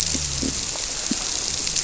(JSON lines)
{"label": "biophony", "recorder": "SoundTrap 300"}